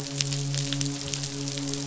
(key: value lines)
label: biophony, midshipman
recorder: SoundTrap 500